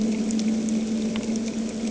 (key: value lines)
label: anthrophony, boat engine
recorder: HydroMoth